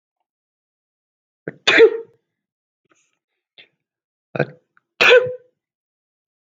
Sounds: Sneeze